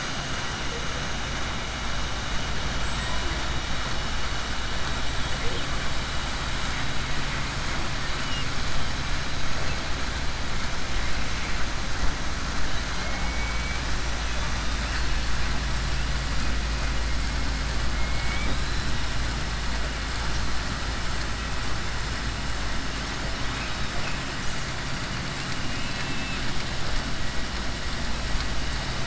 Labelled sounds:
25.6	26.4	killer whale, southern resident, 1.7 to 3.6 kHz

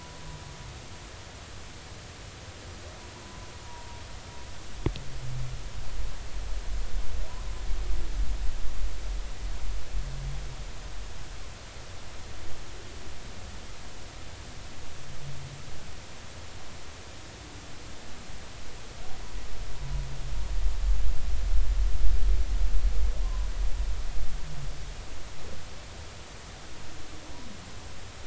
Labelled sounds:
3.2	4.0	humpback whale, 0.83 to 1.1 kHz
23.2	23.5	humpback whale, 0.96 to 1.1 kHz

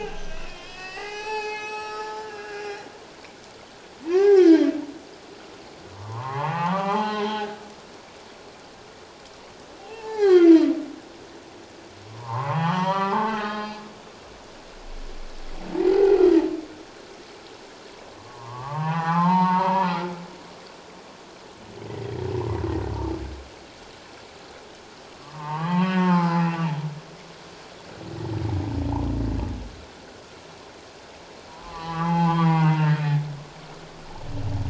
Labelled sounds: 1.0	2.8	humpback whale, 0.81 to 8.0 kHz
4.0	4.7	humpback whale, 0.78 to 2.3 kHz
5.9	7.6	humpback whale, 0.78 to 4.1 kHz
9.8	10.7	humpback whale, 0.78 to 3.3 kHz
12.1	13.9	humpback whale, 0.78 to 5.0 kHz
15.8	16.2	humpback whale, 0.78 to 2.1 kHz
18.1	20.1	humpback whale, 0.78 to 4.1 kHz
21.9	22.3	humpback whale, 1.8 to 2.1 kHz
25.2	26.5	humpback whale, 0.78 to 3.3 kHz
31.5	33.0	humpback whale, 0.78 to 3.3 kHz

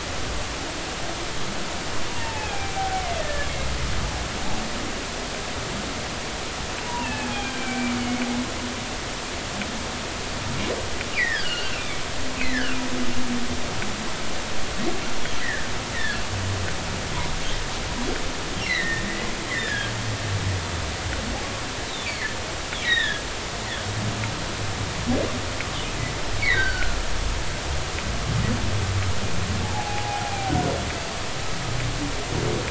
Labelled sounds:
2.1	3.5	humpback whale, 0.80 to 2.8 kHz
6.9	8.0	humpback whale, 0.86 to 3.4 kHz
11.2	11.8	humpback whale, 1.4 to 3.4 kHz
12.4	12.8	humpback whale, 1.2 to 2.6 kHz
15.4	16.2	humpback whale, 1.5 to 2.2 kHz
18.6	19.1	humpback whale, 1.8 to 2.4 kHz
19.5	19.9	humpback whale, 1.6 to 2.1 kHz
22.0	22.4	humpback whale, 1.7 to 2.6 kHz
22.8	23.2	humpback whale, 1.6 to 4.0 kHz
26.4	27.0	humpback whale, 1.3 to 4.7 kHz
29.6	30.5	humpback whale, 0.80 to 0.96 kHz

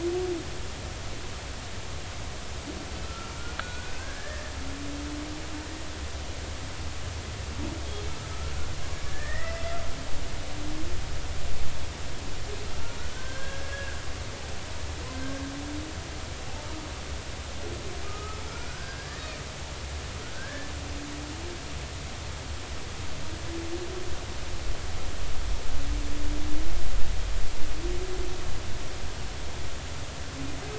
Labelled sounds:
3.0	3.3	humpback whale, 1.2 to 1.4 kHz
3.6	4.5	humpback whale, 1.2 to 1.9 kHz
9.1	9.8	humpback whale, 1.7 to 2.1 kHz
13.1	14.0	humpback whale, 1.4 to 1.7 kHz
18.0	19.2	humpback whale, 1.2 to 1.9 kHz
20.3	20.7	humpback whale, 1.5 to 1.8 kHz

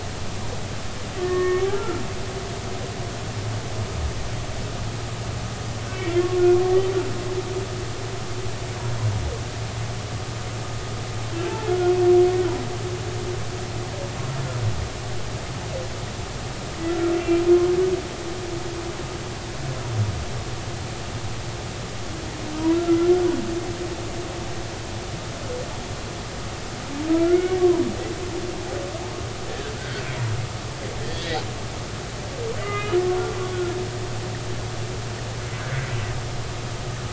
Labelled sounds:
1.2	2.0	humpback whale, 1.0 to 1.9 kHz
5.9	6.2	humpback whale, 2.1 to 2.4 kHz
11.7	12.0	humpback whale, 1.4 to 1.5 kHz
16.9	17.1	humpback whale, 1.3 to 1.4 kHz
22.7	23.1	humpback whale, 1.3 to 1.4 kHz
27.1	27.6	humpback whale, 1.2 to 2.3 kHz
29.5	30.0	humpback whale, 1.4 to 1.8 kHz
31.0	31.4	humpback whale, 1.7 to 3.4 kHz
32.6	33.7	humpback whale, 1.2 to 3.0 kHz
35.6	35.9	humpback whale, 1.4 to 1.7 kHz

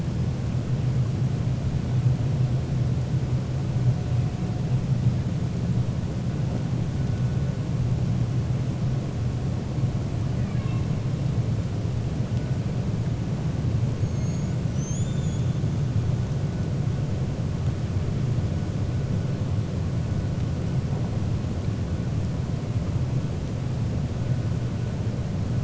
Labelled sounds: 10.3	10.8	killer whale, 1.1 to 3.8 kHz
14.1	15.5	killer whale, 3.0 to 7.2 kHz

